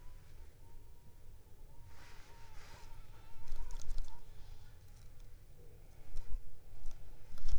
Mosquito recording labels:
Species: Anopheles arabiensis; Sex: female; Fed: unfed; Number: one; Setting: cup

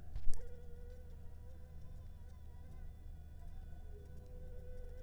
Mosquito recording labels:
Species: Anopheles funestus s.s.; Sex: female; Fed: unfed; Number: one; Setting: cup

